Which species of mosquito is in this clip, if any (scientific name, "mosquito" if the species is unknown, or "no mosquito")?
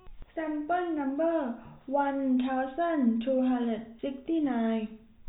no mosquito